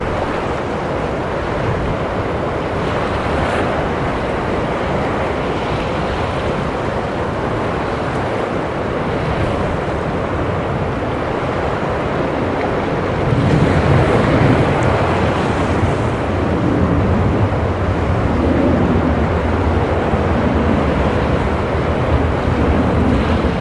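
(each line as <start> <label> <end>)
0.0 Sea waves crashing in the distance on the beach. 23.6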